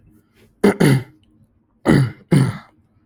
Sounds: Throat clearing